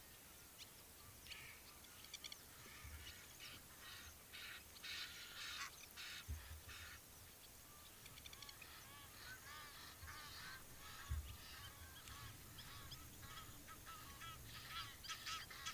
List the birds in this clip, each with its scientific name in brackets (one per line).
Egyptian Goose (Alopochen aegyptiaca)
Blacksmith Lapwing (Vanellus armatus)